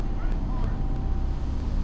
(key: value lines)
label: biophony
recorder: SoundTrap 300